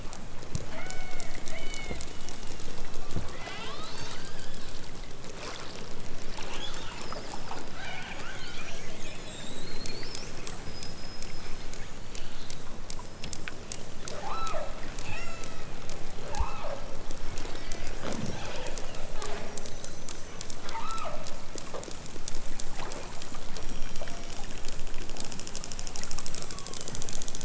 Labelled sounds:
0.6	3.9	killer whale, southern Alaska resident, 0.41 to 5.9 kHz
7.7	8.7	killer whale, southern Alaska resident, 0.46 to 5.5 kHz
14.1	14.6	killer whale, southern Alaska resident, 0.37 to 5.6 kHz
15.0	15.8	killer whale, southern Alaska resident, 0.97 to 8.0 kHz
16.2	16.8	killer whale, southern Alaska resident, 0.37 to 4.1 kHz
20.6	21.2	killer whale, southern Alaska resident, 0.37 to 4.2 kHz
23.5	24.7	killer whale, southern Alaska resident, 1.8 to 5.9 kHz
26.4	27.2	killer whale, southern Alaska resident, 0.87 to 6.3 kHz

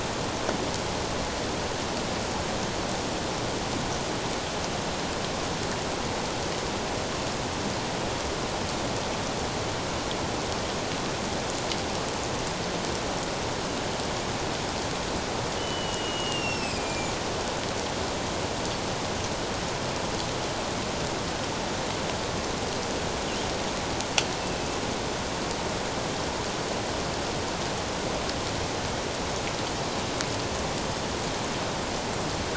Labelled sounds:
15.6	17.2	killer whale, Bigg's (transient), 2.2 to 8.0 kHz
24.4	24.8	killer whale, Bigg's (transient), 2.5 to 2.7 kHz

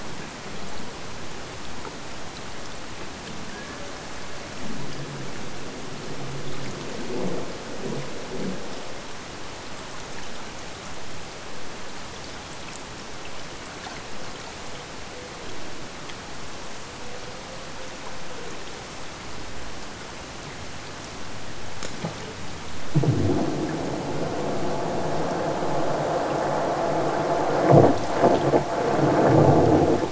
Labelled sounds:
3.5	4.0	killer whale, Bigg's (transient), AT1 transient, 0.40 to 1.8 kHz

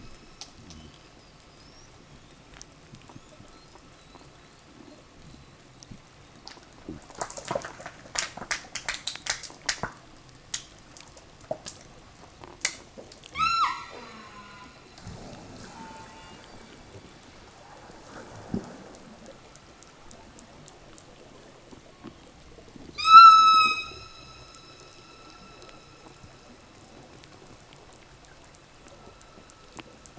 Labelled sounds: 13.2	15.0	killer whale, southern resident, 0 to 8.0 kHz
15.5	16.6	killer whale, southern resident, call S04, 0 to 4.1 kHz
22.8	24.6	killer whale, southern resident, call S16, 0.58 to 8.0 kHz

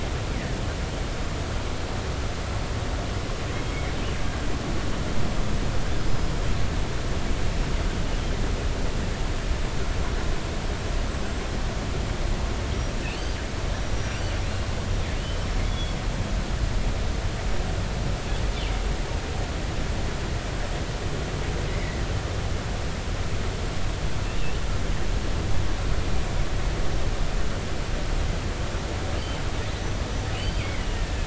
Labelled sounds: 3.7	3.9	killer whale, northern resident, G clan, GI subclan, call N23i, 2.0 to 2.3 kHz
6.1	6.3	killer whale, northern resident, G clan, GI subclan, call N23i, 5.0 to 5.1 kHz
13.1	14.7	killer whale, northern resident, G clan, GI subclan, call N23i, 3.9 to 5.8 kHz
15.7	16.0	killer whale, northern resident, G clan, GI subclan, call N23i, 3.3 to 3.5 kHz
21.7	22.0	killer whale, northern resident, 1.9 to 2.3 kHz
29.7	30.7	killer whale, northern resident, G clan, GI subclan, call N23i, 2.8 to 6.1 kHz
30.6	31.2	killer whale, northern resident, G clan, 1.7 to 2.3 kHz

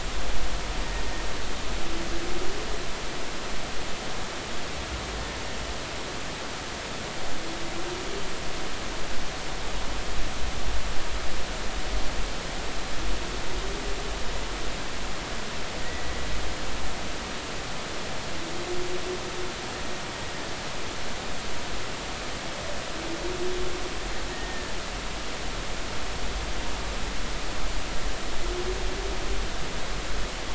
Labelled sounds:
15.8	16.2	humpback whale, 1.8 to 2.0 kHz
25.3	25.7	humpback whale, 1.7 to 1.9 kHz

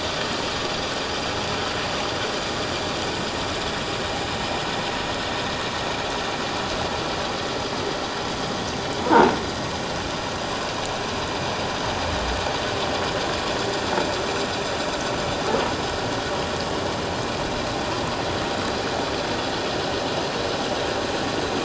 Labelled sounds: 9.0	9.3	croaking sound likely from a nearby submerged object, 0.81 to 1.0 kHz

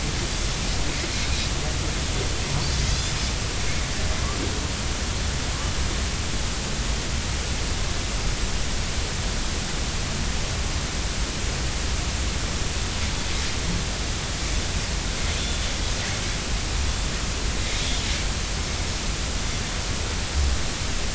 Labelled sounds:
2.9	3.2	Pacific white-sided dolphin, 3.3 to 5.1 kHz

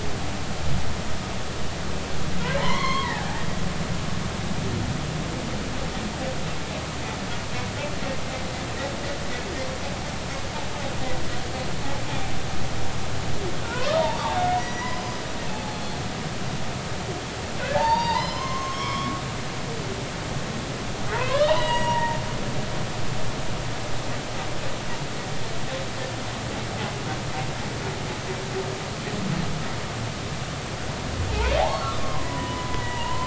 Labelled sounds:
2.6	3.4	humpback whale, 0.80 to 4.4 kHz
13.6	14.0	humpback whale, 0.90 to 1.5 kHz
14.6	15.2	humpback whale, 1.9 to 5.9 kHz
15.5	16.0	humpback whale, 0.80 to 3.5 kHz
17.6	19.2	humpback whale, 0.80 to 5.2 kHz
21.1	22.2	humpback whale, 0.80 to 7.7 kHz
31.3	33.2	humpback whale, 0.80 to 3.1 kHz

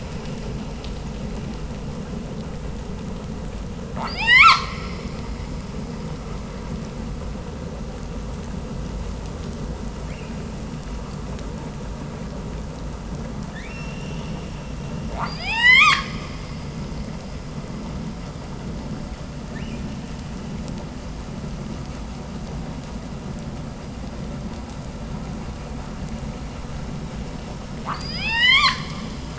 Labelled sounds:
3.8	4.7	killer whale, 0.34 to 8.0 kHz
15.0	16.4	killer whale, 0.40 to 8.0 kHz
19.5	19.9	killer whale, 1.4 to 6.3 kHz
27.8	29.3	killer whale, 0.37 to 8.0 kHz

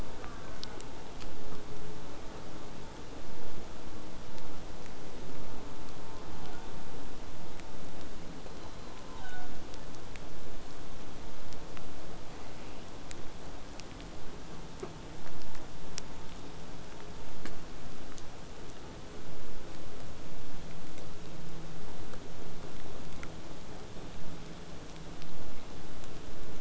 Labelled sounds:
0.2	0.8	killer whale, southern resident, J pod, call S04, 0.59 to 2.2 kHz
6.4	6.7	killer whale, southern resident, 1.3 to 3.7 kHz
8.4	10.0	killer whale, southern resident, J pod, call S07, 0.55 to 4.2 kHz

